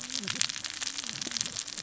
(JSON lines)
{"label": "biophony, cascading saw", "recorder": "SoundTrap 600 or HydroMoth"}